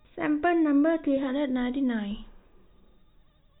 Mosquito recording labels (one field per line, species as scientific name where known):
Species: no mosquito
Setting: cup